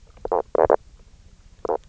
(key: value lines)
label: biophony, knock croak
recorder: SoundTrap 300